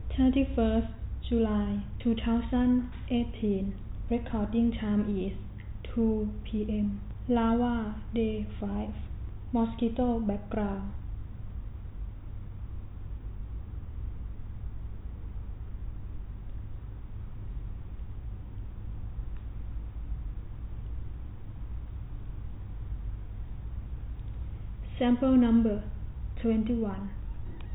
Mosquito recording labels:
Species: no mosquito; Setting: cup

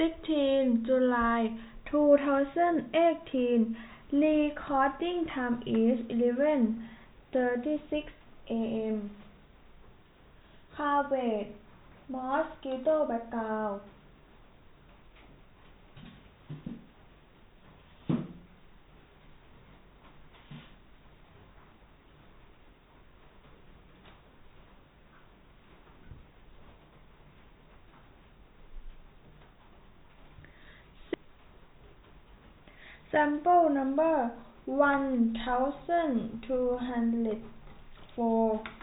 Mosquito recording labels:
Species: no mosquito; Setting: cup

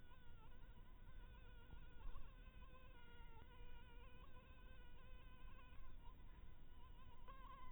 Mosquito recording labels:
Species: Anopheles maculatus; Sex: female; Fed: blood-fed; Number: one; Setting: cup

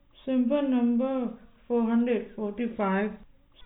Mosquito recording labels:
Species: no mosquito; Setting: cup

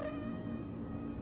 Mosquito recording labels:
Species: Culex quinquefasciatus; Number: one; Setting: insect culture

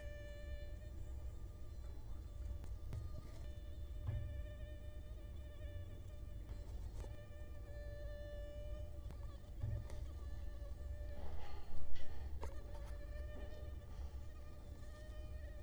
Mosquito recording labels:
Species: Culex quinquefasciatus; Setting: cup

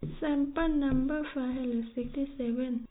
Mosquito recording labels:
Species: no mosquito; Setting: cup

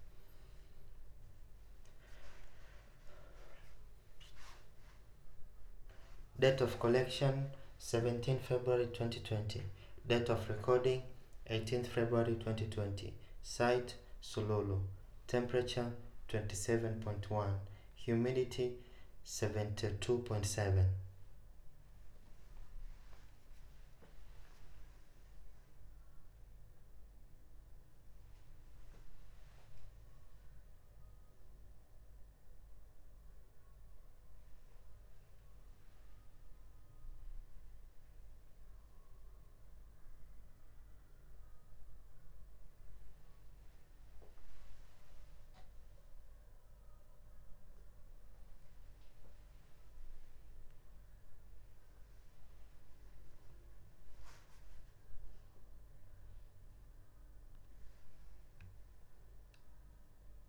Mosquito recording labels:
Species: no mosquito; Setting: cup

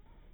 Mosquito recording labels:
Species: no mosquito; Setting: cup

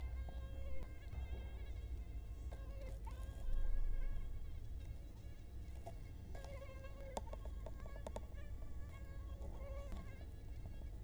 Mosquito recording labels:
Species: Culex quinquefasciatus; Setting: cup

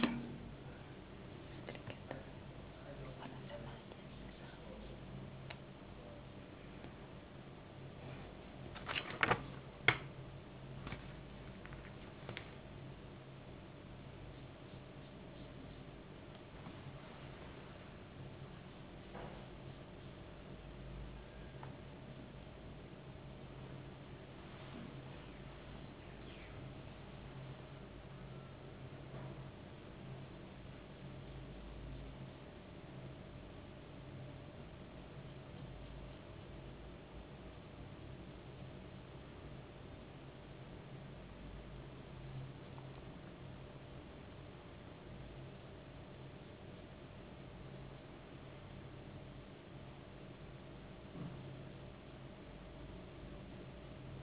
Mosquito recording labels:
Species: no mosquito; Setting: insect culture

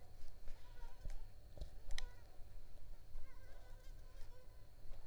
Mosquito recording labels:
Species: Culex pipiens complex; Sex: female; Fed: unfed; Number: one; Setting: cup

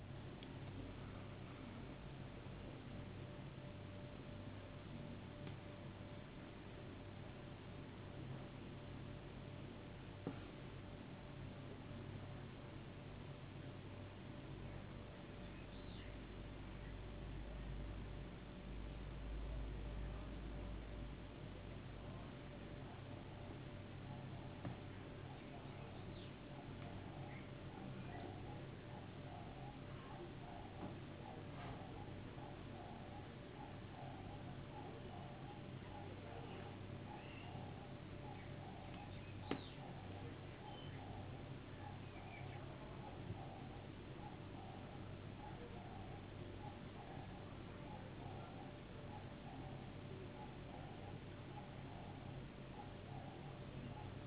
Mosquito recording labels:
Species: no mosquito; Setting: insect culture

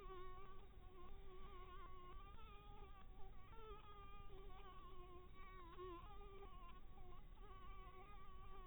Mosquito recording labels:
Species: Anopheles dirus; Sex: female; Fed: unfed; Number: one; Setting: cup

